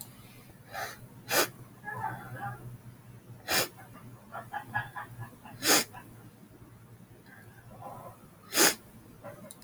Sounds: Sniff